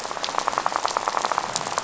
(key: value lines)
label: biophony, rattle
recorder: SoundTrap 500